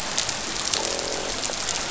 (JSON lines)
{"label": "biophony, croak", "recorder": "SoundTrap 500"}